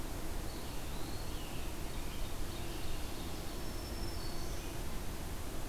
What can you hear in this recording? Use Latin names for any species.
Contopus virens, Seiurus aurocapilla, Setophaga virens